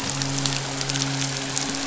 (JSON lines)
{"label": "biophony, midshipman", "recorder": "SoundTrap 500"}